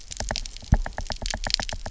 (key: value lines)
label: biophony, knock
recorder: SoundTrap 300